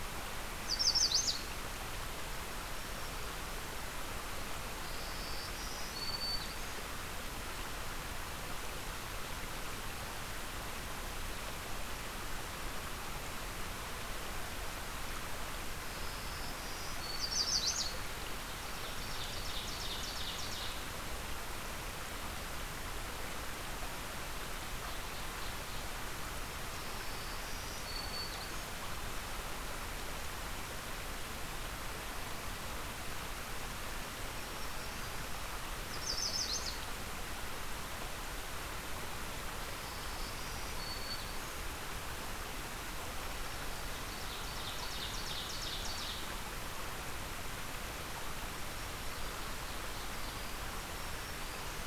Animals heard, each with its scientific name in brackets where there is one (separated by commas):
Ovenbird (Seiurus aurocapilla), Black-throated Green Warbler (Setophaga virens), Yellow Warbler (Setophaga petechia)